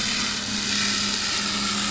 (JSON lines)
{"label": "anthrophony, boat engine", "recorder": "SoundTrap 500"}